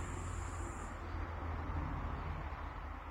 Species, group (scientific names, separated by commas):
Tettigonia cantans, Orthoptera